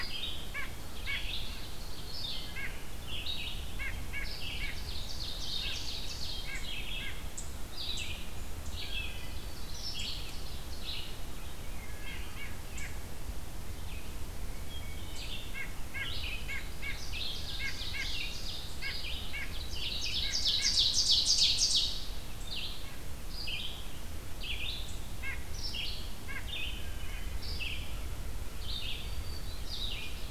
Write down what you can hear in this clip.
White-breasted Nuthatch, Ovenbird, Red-eyed Vireo, Wood Thrush, Black-throated Green Warbler